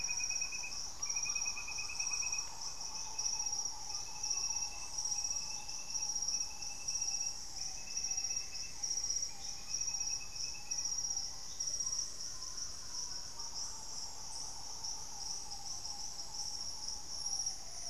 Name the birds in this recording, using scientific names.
Mesembrinibis cayennensis, Formicarius analis